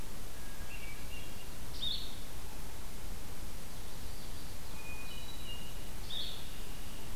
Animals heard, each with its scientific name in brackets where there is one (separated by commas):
Blue-headed Vireo (Vireo solitarius), Black-throated Green Warbler (Setophaga virens), Red-winged Blackbird (Agelaius phoeniceus), Common Yellowthroat (Geothlypis trichas), Hermit Thrush (Catharus guttatus)